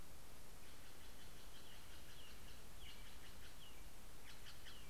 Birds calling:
Steller's Jay (Cyanocitta stelleri)

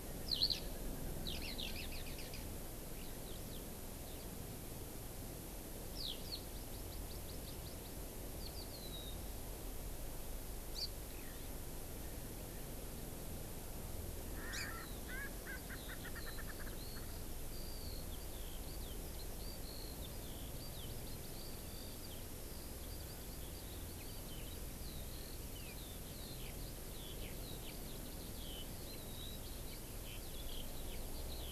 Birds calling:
Erckel's Francolin (Pternistis erckelii), Hawaii Amakihi (Chlorodrepanis virens), Eurasian Skylark (Alauda arvensis)

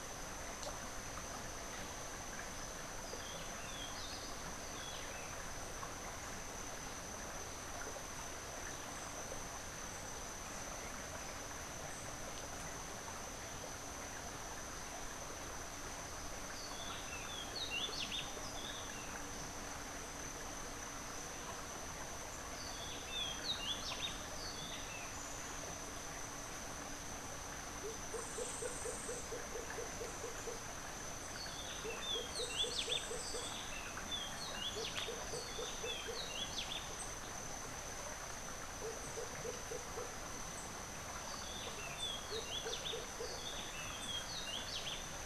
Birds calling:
Rufous-breasted Wren (Pheugopedius rutilus), Lesson's Motmot (Momotus lessonii)

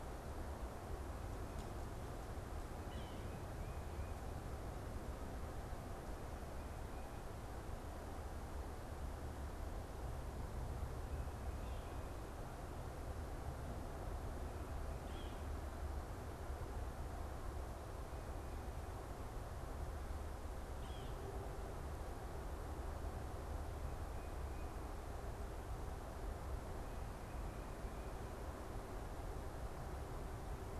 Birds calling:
Yellow-bellied Sapsucker (Sphyrapicus varius)

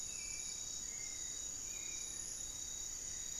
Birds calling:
Black-faced Antthrush (Formicarius analis), Hauxwell's Thrush (Turdus hauxwelli)

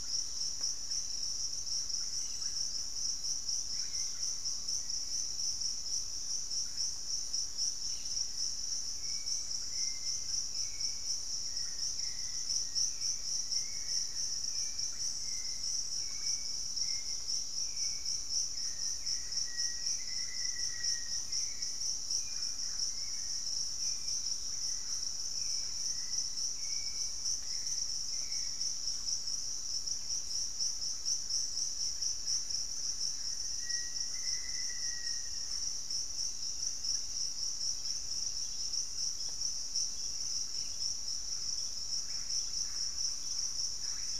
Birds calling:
Hauxwell's Thrush (Turdus hauxwelli), Thrush-like Wren (Campylorhynchus turdinus), Russet-backed Oropendola (Psarocolius angustifrons), Black-faced Antthrush (Formicarius analis), unidentified bird

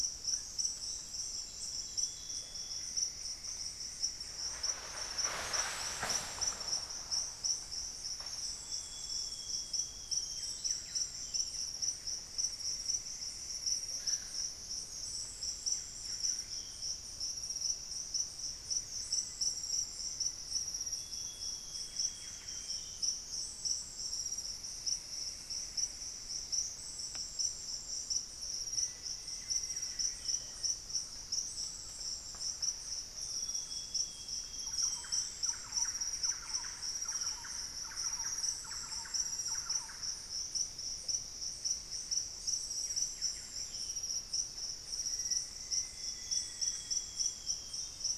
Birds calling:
unidentified bird, Thrush-like Wren (Campylorhynchus turdinus), Amazonian Grosbeak (Cyanoloxia rothschildii), Buff-breasted Wren (Cantorchilus leucotis), Cinnamon-throated Woodcreeper (Dendrexetastes rufigula), Black-faced Antthrush (Formicarius analis)

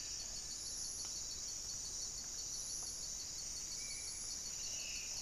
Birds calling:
Black-spotted Bare-eye (Phlegopsis nigromaculata), Buff-breasted Wren (Cantorchilus leucotis), Spot-winged Antshrike (Pygiptila stellaris), Black-faced Antthrush (Formicarius analis)

